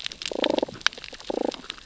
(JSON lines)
{"label": "biophony, damselfish", "recorder": "SoundTrap 600 or HydroMoth"}